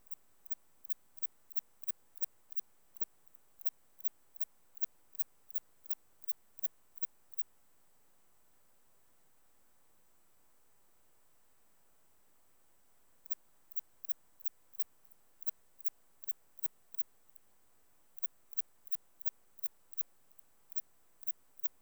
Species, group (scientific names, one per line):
Antaxius spinibrachius
Orthoptera